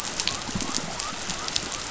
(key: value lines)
label: biophony
recorder: SoundTrap 500